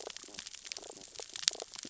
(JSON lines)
{"label": "biophony, stridulation", "recorder": "SoundTrap 600 or HydroMoth"}
{"label": "biophony, damselfish", "recorder": "SoundTrap 600 or HydroMoth"}